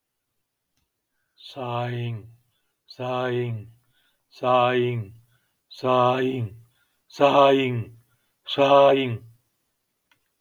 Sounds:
Sigh